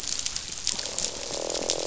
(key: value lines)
label: biophony, croak
recorder: SoundTrap 500